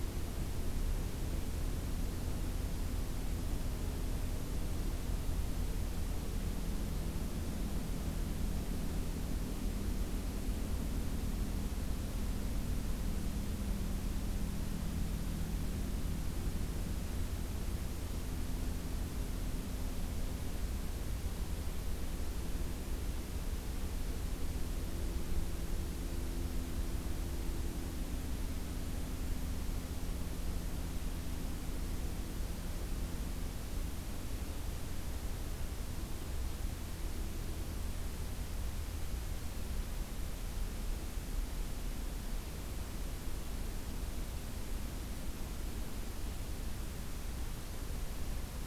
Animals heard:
forest ambience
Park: Acadia National Park